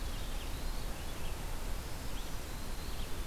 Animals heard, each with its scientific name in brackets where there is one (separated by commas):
Red-eyed Vireo (Vireo olivaceus), Black-throated Green Warbler (Setophaga virens), Eastern Wood-Pewee (Contopus virens)